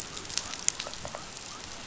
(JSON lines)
{"label": "biophony", "recorder": "SoundTrap 500"}